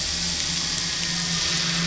{"label": "anthrophony, boat engine", "recorder": "SoundTrap 500"}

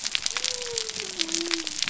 {"label": "biophony", "recorder": "SoundTrap 300"}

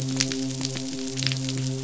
{"label": "biophony, midshipman", "recorder": "SoundTrap 500"}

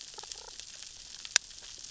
{"label": "biophony, damselfish", "recorder": "SoundTrap 600 or HydroMoth"}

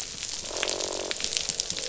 {"label": "biophony, croak", "recorder": "SoundTrap 500"}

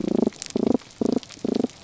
{"label": "biophony, damselfish", "recorder": "SoundTrap 300"}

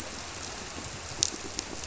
{"label": "biophony, squirrelfish (Holocentrus)", "recorder": "SoundTrap 300"}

